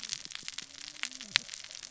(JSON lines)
{"label": "biophony, cascading saw", "recorder": "SoundTrap 600 or HydroMoth"}